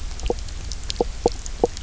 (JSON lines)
{"label": "biophony, knock croak", "recorder": "SoundTrap 300"}